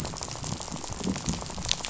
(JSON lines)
{"label": "biophony, rattle", "recorder": "SoundTrap 500"}